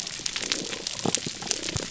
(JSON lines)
{"label": "biophony", "recorder": "SoundTrap 300"}